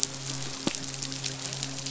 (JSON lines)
{"label": "biophony, midshipman", "recorder": "SoundTrap 500"}